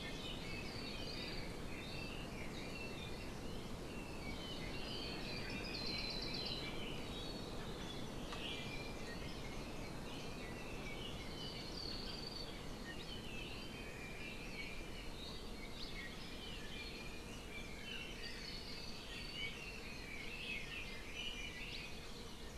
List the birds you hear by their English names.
Iiwi, Red-billed Leiothrix, Hawaii Creeper